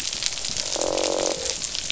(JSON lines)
{"label": "biophony, croak", "recorder": "SoundTrap 500"}